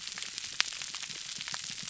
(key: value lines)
label: biophony
recorder: SoundTrap 300